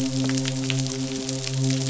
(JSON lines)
{"label": "biophony, midshipman", "recorder": "SoundTrap 500"}